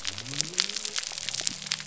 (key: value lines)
label: biophony
recorder: SoundTrap 300